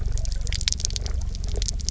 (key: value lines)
label: anthrophony, boat engine
recorder: SoundTrap 300